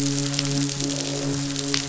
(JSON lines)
{"label": "biophony, midshipman", "recorder": "SoundTrap 500"}